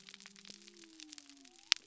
{"label": "biophony", "recorder": "SoundTrap 300"}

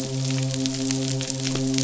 {"label": "biophony, midshipman", "recorder": "SoundTrap 500"}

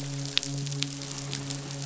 {"label": "biophony, midshipman", "recorder": "SoundTrap 500"}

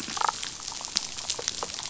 {"label": "biophony, damselfish", "recorder": "SoundTrap 500"}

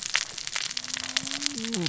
{"label": "biophony, cascading saw", "recorder": "SoundTrap 600 or HydroMoth"}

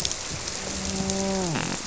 {"label": "biophony, grouper", "recorder": "SoundTrap 300"}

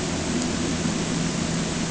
{"label": "anthrophony, boat engine", "recorder": "HydroMoth"}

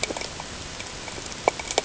{"label": "ambient", "recorder": "HydroMoth"}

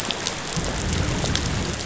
{"label": "biophony", "recorder": "SoundTrap 500"}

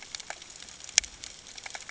{"label": "ambient", "recorder": "HydroMoth"}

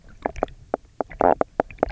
{"label": "biophony, knock croak", "recorder": "SoundTrap 300"}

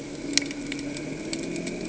{"label": "anthrophony, boat engine", "recorder": "HydroMoth"}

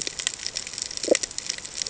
{"label": "ambient", "recorder": "HydroMoth"}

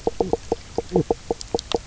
{"label": "biophony, knock croak", "recorder": "SoundTrap 300"}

